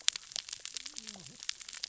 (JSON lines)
{"label": "biophony, cascading saw", "recorder": "SoundTrap 600 or HydroMoth"}